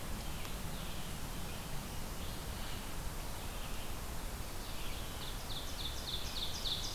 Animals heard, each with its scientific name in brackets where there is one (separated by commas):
Ovenbird (Seiurus aurocapilla), Red-eyed Vireo (Vireo olivaceus)